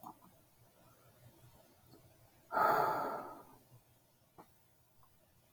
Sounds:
Sigh